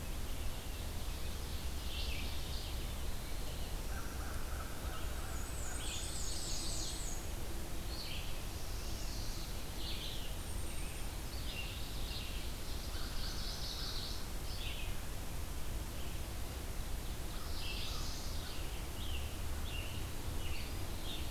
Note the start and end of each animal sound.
0.0s-21.3s: Red-eyed Vireo (Vireo olivaceus)
0.3s-2.1s: Ovenbird (Seiurus aurocapilla)
1.8s-2.9s: Mourning Warbler (Geothlypis philadelphia)
2.4s-3.8s: Eastern Wood-Pewee (Contopus virens)
3.8s-6.1s: American Crow (Corvus brachyrhynchos)
5.1s-7.3s: Black-and-white Warbler (Mniotilta varia)
5.8s-7.1s: Chestnut-sided Warbler (Setophaga pensylvanica)
8.3s-9.6s: Chestnut-sided Warbler (Setophaga pensylvanica)
10.3s-11.1s: Golden-crowned Kinglet (Regulus satrapa)
11.2s-13.0s: Ovenbird (Seiurus aurocapilla)
12.7s-14.2s: Chestnut-sided Warbler (Setophaga pensylvanica)
12.7s-14.1s: American Crow (Corvus brachyrhynchos)
17.2s-18.1s: American Crow (Corvus brachyrhynchos)
17.3s-18.5s: Chestnut-sided Warbler (Setophaga pensylvanica)
18.4s-21.3s: Scarlet Tanager (Piranga olivacea)

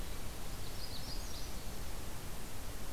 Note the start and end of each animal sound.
0.4s-1.8s: Magnolia Warbler (Setophaga magnolia)

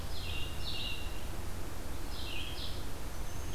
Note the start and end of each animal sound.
0.0s-3.5s: Red-eyed Vireo (Vireo olivaceus)

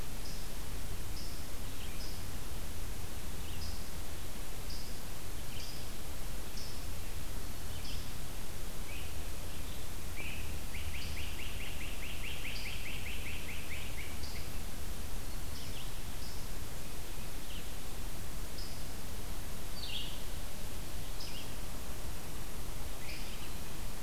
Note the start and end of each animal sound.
0.0s-24.0s: Red-eyed Vireo (Vireo olivaceus)
0.0s-24.0s: unknown mammal
10.5s-14.3s: Great Crested Flycatcher (Myiarchus crinitus)

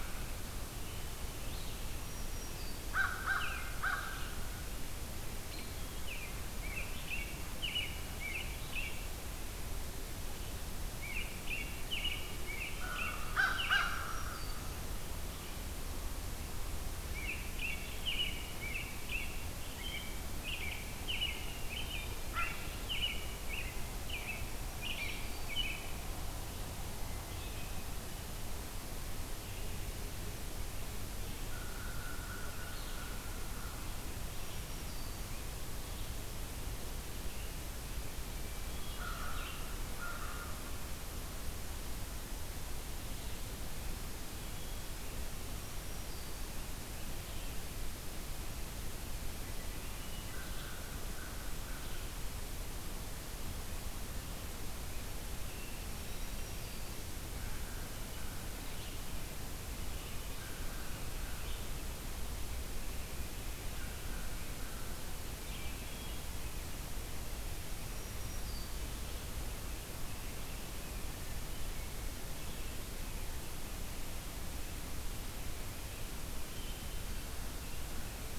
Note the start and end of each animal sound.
0.8s-4.3s: American Robin (Turdus migratorius)
2.0s-4.2s: American Crow (Corvus brachyrhynchos)
5.4s-9.2s: American Robin (Turdus migratorius)
11.0s-14.0s: American Robin (Turdus migratorius)
12.8s-14.6s: American Crow (Corvus brachyrhynchos)
13.7s-14.9s: Black-throated Green Warbler (Setophaga virens)
16.9s-26.1s: American Robin (Turdus migratorius)
24.6s-25.8s: American Crow (Corvus brachyrhynchos)
26.9s-27.9s: Hermit Thrush (Catharus guttatus)
29.4s-47.6s: Red-eyed Vireo (Vireo olivaceus)
31.5s-33.8s: American Crow (Corvus brachyrhynchos)
34.3s-35.5s: Black-throated Green Warbler (Setophaga virens)
38.0s-39.6s: Hermit Thrush (Catharus guttatus)
38.9s-40.6s: American Crow (Corvus brachyrhynchos)
45.3s-46.8s: Black-throated Green Warbler (Setophaga virens)
49.4s-50.7s: Hermit Thrush (Catharus guttatus)
50.3s-52.1s: American Crow (Corvus brachyrhynchos)
55.3s-56.7s: Hermit Thrush (Catharus guttatus)
55.9s-58.8s: American Crow (Corvus brachyrhynchos)
58.6s-77.3s: Red-eyed Vireo (Vireo olivaceus)
59.9s-61.6s: American Crow (Corvus brachyrhynchos)
63.7s-65.0s: American Crow (Corvus brachyrhynchos)
65.4s-66.6s: Hermit Thrush (Catharus guttatus)
67.7s-69.0s: Black-throated Green Warbler (Setophaga virens)

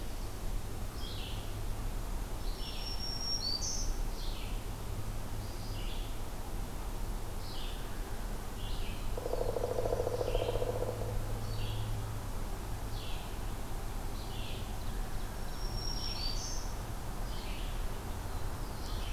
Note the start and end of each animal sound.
0.0s-19.1s: Red-eyed Vireo (Vireo olivaceus)
2.4s-4.0s: Black-throated Green Warbler (Setophaga virens)
8.7s-10.4s: Black-throated Blue Warbler (Setophaga caerulescens)
9.1s-11.1s: Pileated Woodpecker (Dryocopus pileatus)
15.3s-16.9s: Black-throated Green Warbler (Setophaga virens)
17.9s-19.1s: Black-throated Blue Warbler (Setophaga caerulescens)

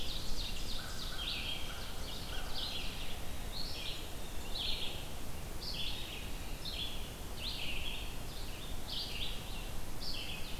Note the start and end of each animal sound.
0.0s-3.6s: Ovenbird (Seiurus aurocapilla)
0.0s-10.6s: Red-eyed Vireo (Vireo olivaceus)
0.4s-3.7s: American Crow (Corvus brachyrhynchos)

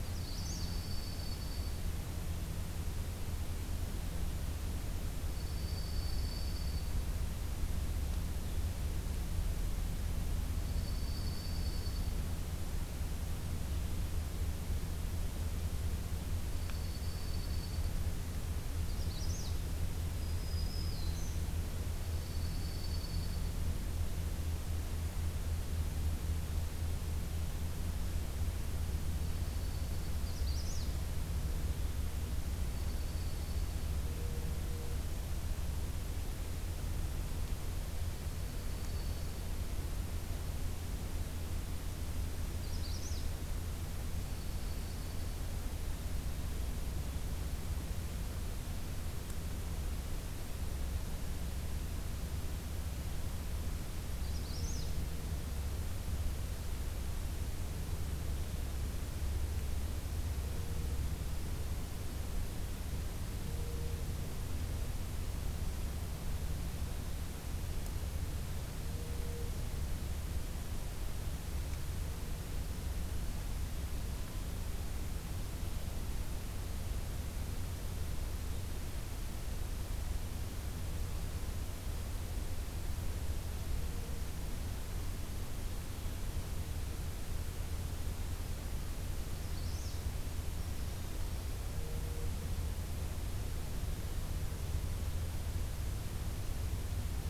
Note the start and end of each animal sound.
0.0s-0.7s: Magnolia Warbler (Setophaga magnolia)
0.1s-2.0s: Dark-eyed Junco (Junco hyemalis)
5.2s-7.0s: Dark-eyed Junco (Junco hyemalis)
10.6s-12.2s: Dark-eyed Junco (Junco hyemalis)
16.5s-17.9s: Dark-eyed Junco (Junco hyemalis)
18.8s-19.6s: Magnolia Warbler (Setophaga magnolia)
20.0s-21.4s: Black-throated Green Warbler (Setophaga virens)
21.9s-23.7s: Dark-eyed Junco (Junco hyemalis)
29.0s-30.3s: Dark-eyed Junco (Junco hyemalis)
30.1s-31.0s: Magnolia Warbler (Setophaga magnolia)
32.6s-33.9s: Dark-eyed Junco (Junco hyemalis)
38.2s-39.5s: Dark-eyed Junco (Junco hyemalis)
42.5s-43.3s: Magnolia Warbler (Setophaga magnolia)
44.2s-45.3s: Dark-eyed Junco (Junco hyemalis)
54.2s-54.9s: Magnolia Warbler (Setophaga magnolia)
89.3s-90.0s: Magnolia Warbler (Setophaga magnolia)

